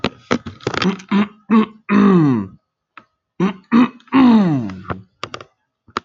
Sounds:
Throat clearing